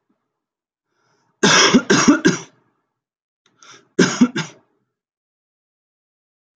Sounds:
Cough